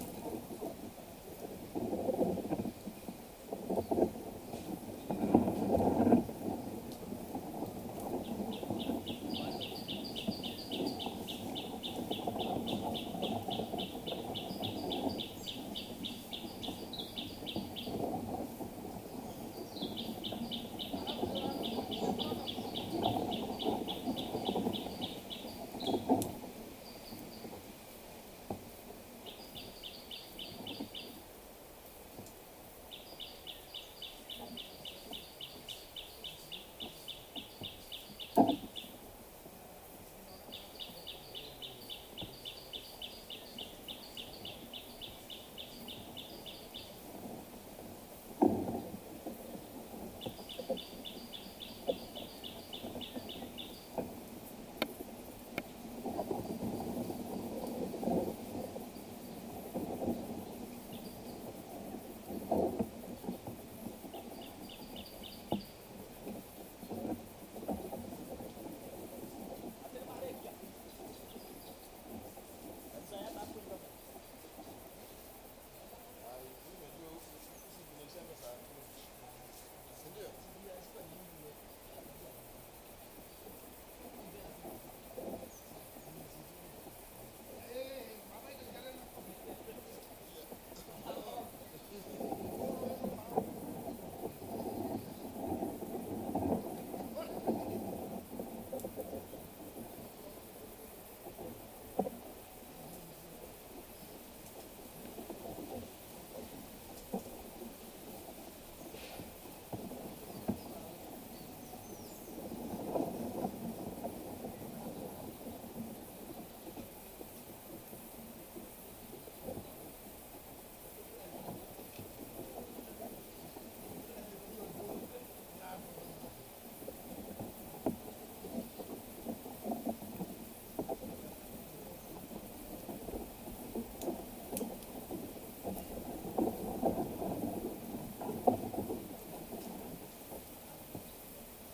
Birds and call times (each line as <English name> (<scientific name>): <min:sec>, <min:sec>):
Gray Apalis (Apalis cinerea): 0:13.0, 0:36.0, 0:52.4, 1:04.9
White-eyed Slaty-Flycatcher (Melaenornis fischeri): 1:52.0